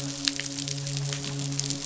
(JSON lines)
{"label": "biophony, midshipman", "recorder": "SoundTrap 500"}